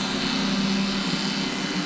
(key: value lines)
label: anthrophony, boat engine
recorder: SoundTrap 500